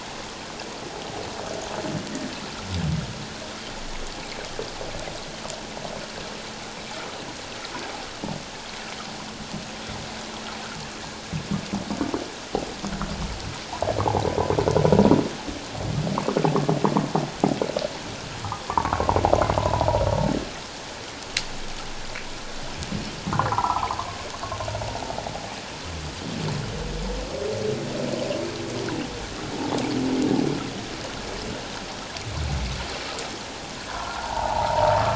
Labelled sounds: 18.7	19.9	humpback whale, 0.84 to 1.2 kHz
23.3	24.0	humpback whale, 0.78 to 1.5 kHz
33.9	35.1	humpback whale, 0.78 to 1.5 kHz

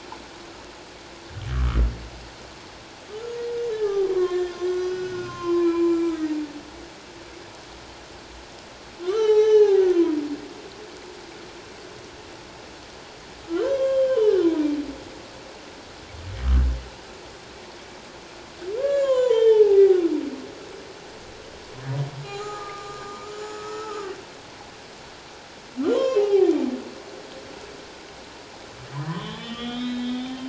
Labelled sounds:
1.5	1.8	humpback whale, 1.1 to 1.4 kHz
3.7	6.3	humpback whale, 0.78 to 7.2 kHz
9.0	10.2	humpback whale, 0.78 to 6.2 kHz
13.5	14.7	humpback whale, 0.81 to 7.5 kHz
18.8	20.0	humpback whale, 0.78 to 4.0 kHz
22.2	24.1	humpback whale, 0.78 to 7.3 kHz
25.8	26.5	humpback whale, 0.78 to 3.3 kHz
29.1	30.4	humpback whale, 0.94 to 4.0 kHz

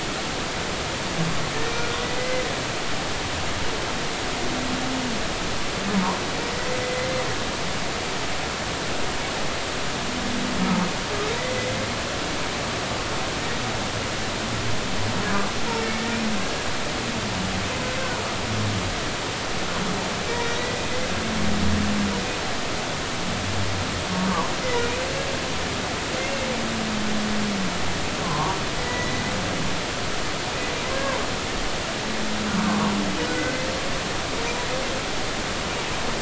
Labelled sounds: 2.2	2.5	humpback whale, 2.0 to 2.1 kHz
5.9	7.2	humpback whale, 0.86 to 2.1 kHz
11.5	11.8	humpback whale, 2.0 to 2.1 kHz
24.6	24.9	humpback whale, 1.9 to 2.1 kHz
28.2	29.2	humpback whale, 0.80 to 2.0 kHz
30.9	31.2	humpback whale, 1.5 to 1.8 kHz
32.6	32.9	humpback whale, 0.86 to 1.2 kHz
33.2	33.6	humpback whale, 1.4 to 1.6 kHz

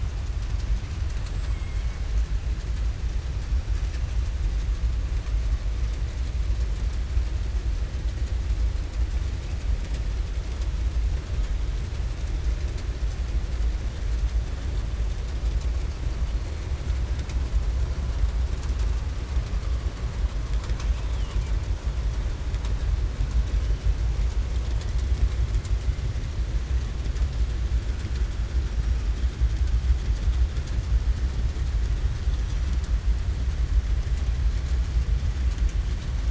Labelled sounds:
1.3	1.9	killer whale, southern resident, 1.2 to 3.2 kHz

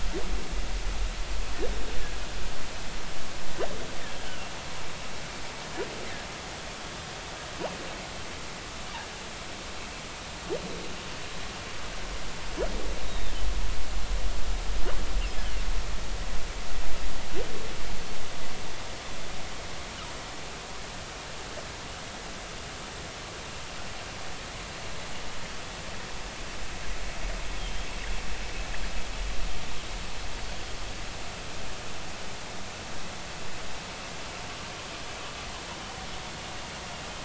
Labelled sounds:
13.0	13.3	humpback whale, 3.5 to 4.0 kHz
27.5	27.9	humpback whale, 3.1 to 3.4 kHz

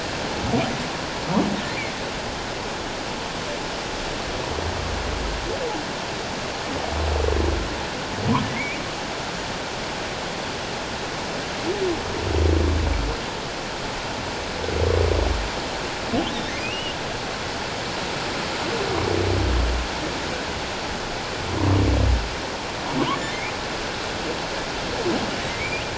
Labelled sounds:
8.5	8.8	humpback whale, 1.9 to 2.6 kHz
16.5	17.0	humpback whale, 1.8 to 3.0 kHz
25.5	25.8	humpback whale, 2.0 to 2.6 kHz

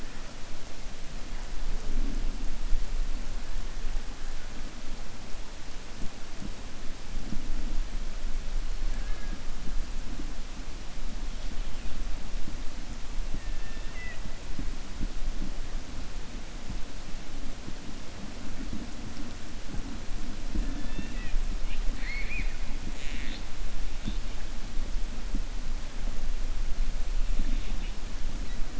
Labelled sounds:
13.3	14.2	killer whale, 1.4 to 3.6 kHz
21.9	22.6	killer whale, 1.6 to 4.4 kHz
22.9	23.5	killer whale, 1.7 to 4.4 kHz
27.4	28.0	killer whale, 1.8 to 3.8 kHz

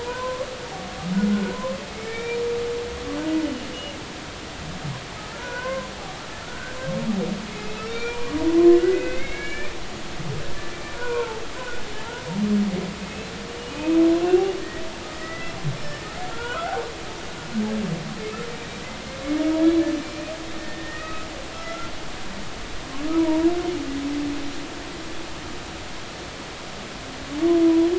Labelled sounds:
0.0	0.5	humpback whale, 0.93 to 1.2 kHz
1.3	2.4	humpback whale, 0.93 to 2.4 kHz
3.4	3.7	humpback whale, 2.8 to 3.0 kHz
5.3	6.8	humpback whale, 0.80 to 1.7 kHz
7.5	8.3	humpback whale, 1.2 to 2.5 kHz
8.7	9.7	humpback whale, 1.4 to 3.9 kHz
10.9	11.8	humpback whale, 0.80 to 2.6 kHz
13.7	14.5	humpback whale, 2.4 to 2.8 kHz
15.1	16.8	humpback whale, 0.86 to 5.4 kHz
20.0	21.3	humpback whale, 1.2 to 2.6 kHz
21.7	21.9	humpback whale, 1.3 to 1.4 kHz
23.1	23.5	humpback whale, 0.86 to 1.0 kHz
27.6	27.9	humpback whale, 0.93 to 1.0 kHz

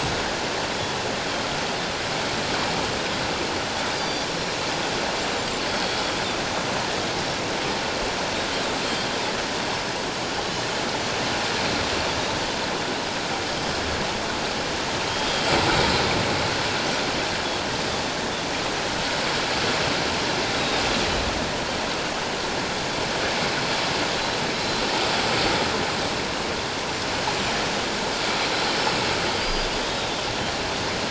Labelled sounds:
3.9	4.3	Pacific white-sided dolphin, 3.3 to 5.9 kHz
5.8	6.1	Pacific white-sided dolphin, 3.2 to 3.5 kHz
8.8	9.1	Pacific white-sided dolphin, 3.1 to 3.3 kHz
15.1	15.5	Pacific white-sided dolphin, 3.1 to 3.3 kHz
20.6	20.8	Pacific white-sided dolphin, 3.6 to 3.9 kHz
24.5	24.8	Pacific white-sided dolphin, 3.9 to 4.1 kHz
29.4	30.1	Pacific white-sided dolphin, 3.6 to 4.9 kHz

